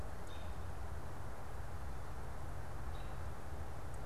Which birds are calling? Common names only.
American Robin